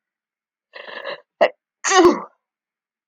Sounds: Sneeze